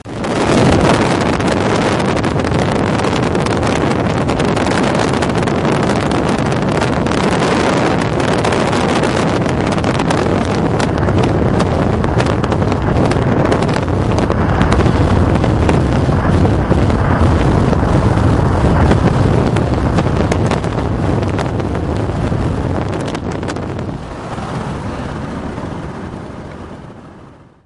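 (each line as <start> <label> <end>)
0.0 Wind blowing near the microphone. 27.7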